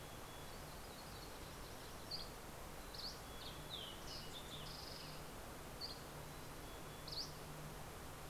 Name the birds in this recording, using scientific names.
Poecile gambeli, Setophaga coronata, Empidonax oberholseri, Passerella iliaca